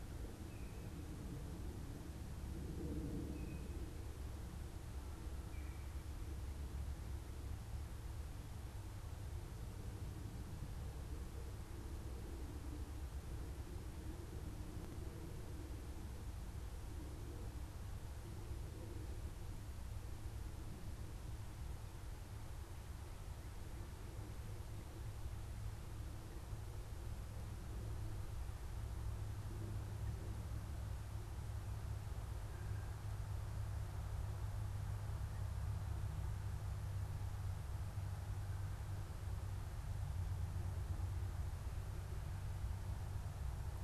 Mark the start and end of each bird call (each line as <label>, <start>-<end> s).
unidentified bird, 0.3-0.8 s
unidentified bird, 3.2-6.0 s